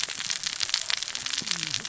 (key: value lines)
label: biophony, cascading saw
recorder: SoundTrap 600 or HydroMoth